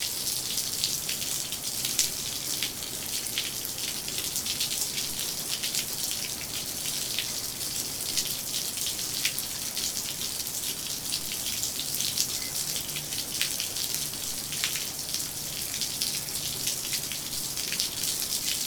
Is the water moving?
yes